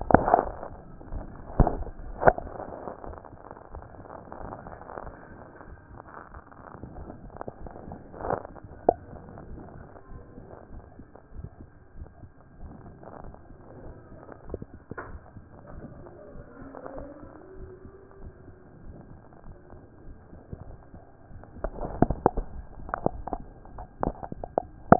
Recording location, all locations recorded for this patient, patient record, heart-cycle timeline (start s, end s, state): aortic valve (AV)
aortic valve (AV)+pulmonary valve (PV)+tricuspid valve (TV)+mitral valve (MV)
#Age: nan
#Sex: Female
#Height: nan
#Weight: nan
#Pregnancy status: True
#Murmur: Absent
#Murmur locations: nan
#Most audible location: nan
#Systolic murmur timing: nan
#Systolic murmur shape: nan
#Systolic murmur grading: nan
#Systolic murmur pitch: nan
#Systolic murmur quality: nan
#Diastolic murmur timing: nan
#Diastolic murmur shape: nan
#Diastolic murmur grading: nan
#Diastolic murmur pitch: nan
#Diastolic murmur quality: nan
#Outcome: Normal
#Campaign: 2014 screening campaign
0.00	9.50	unannotated
9.50	9.62	S1
9.62	9.76	systole
9.76	9.86	S2
9.86	10.10	diastole
10.10	10.22	S1
10.22	10.38	systole
10.38	10.48	S2
10.48	10.72	diastole
10.72	10.84	S1
10.84	10.98	systole
10.98	11.06	S2
11.06	11.36	diastole
11.36	11.48	S1
11.48	11.60	systole
11.60	11.70	S2
11.70	11.96	diastole
11.96	12.08	S1
12.08	12.20	systole
12.20	12.30	S2
12.30	12.60	diastole
12.60	12.72	S1
12.72	12.86	systole
12.86	12.96	S2
12.96	13.22	diastole
13.22	13.34	S1
13.34	13.50	systole
13.50	13.60	S2
13.60	13.82	diastole
13.82	13.94	S1
13.94	14.10	systole
14.10	14.20	S2
14.20	14.46	diastole
14.46	24.99	unannotated